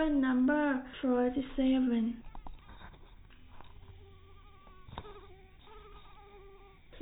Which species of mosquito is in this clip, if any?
mosquito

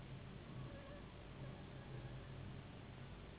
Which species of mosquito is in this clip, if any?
Anopheles gambiae s.s.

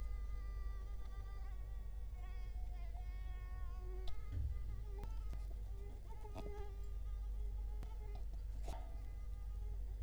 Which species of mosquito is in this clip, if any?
Culex quinquefasciatus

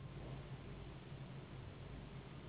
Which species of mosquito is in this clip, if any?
Anopheles gambiae s.s.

